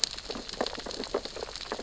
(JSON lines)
{"label": "biophony, sea urchins (Echinidae)", "recorder": "SoundTrap 600 or HydroMoth"}